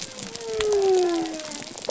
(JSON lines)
{"label": "biophony", "recorder": "SoundTrap 300"}